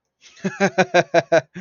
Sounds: Laughter